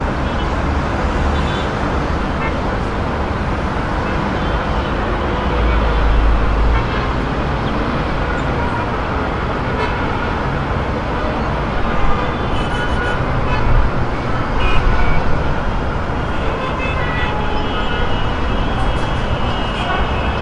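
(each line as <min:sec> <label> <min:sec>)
0:00.0 Multiple distant traffic horns honk repeatedly. 0:20.4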